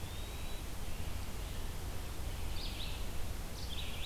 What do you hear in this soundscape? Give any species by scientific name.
Contopus virens, Vireo olivaceus